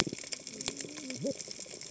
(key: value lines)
label: biophony, cascading saw
recorder: HydroMoth